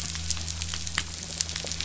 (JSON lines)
{"label": "anthrophony, boat engine", "recorder": "SoundTrap 500"}